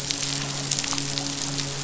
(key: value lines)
label: biophony, midshipman
recorder: SoundTrap 500